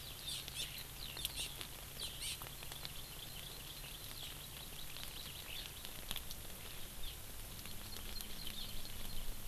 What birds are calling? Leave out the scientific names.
Hawaii Amakihi